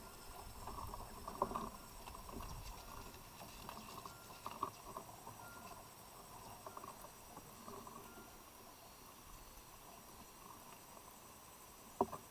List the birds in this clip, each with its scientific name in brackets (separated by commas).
Tropical Boubou (Laniarius major)